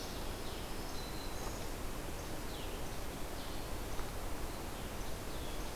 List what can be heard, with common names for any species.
Least Flycatcher, Red-eyed Vireo, Black-throated Green Warbler